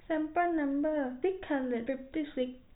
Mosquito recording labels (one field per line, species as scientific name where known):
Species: no mosquito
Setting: cup